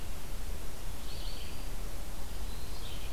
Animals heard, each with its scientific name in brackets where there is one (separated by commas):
Red-eyed Vireo (Vireo olivaceus)